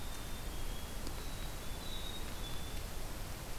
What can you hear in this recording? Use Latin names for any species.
Poecile atricapillus